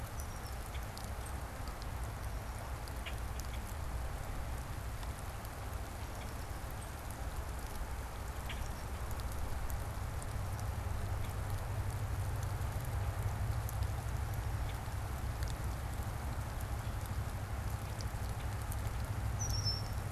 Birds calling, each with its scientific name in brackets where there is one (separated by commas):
Common Grackle (Quiscalus quiscula), Red-winged Blackbird (Agelaius phoeniceus)